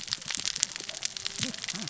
{"label": "biophony, cascading saw", "recorder": "SoundTrap 600 or HydroMoth"}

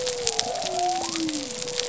{"label": "biophony", "recorder": "SoundTrap 300"}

